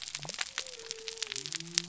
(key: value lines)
label: biophony
recorder: SoundTrap 300